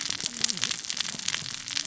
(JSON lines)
{"label": "biophony, cascading saw", "recorder": "SoundTrap 600 or HydroMoth"}